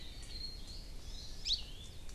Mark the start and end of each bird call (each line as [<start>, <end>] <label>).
[0.97, 1.47] Hawaii Amakihi (Chlorodrepanis virens)
[1.37, 1.77] Hawaii Creeper (Loxops mana)